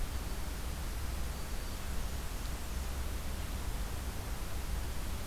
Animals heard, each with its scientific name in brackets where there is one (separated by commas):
Black-throated Green Warbler (Setophaga virens)